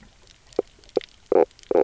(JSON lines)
{"label": "biophony, knock croak", "recorder": "SoundTrap 300"}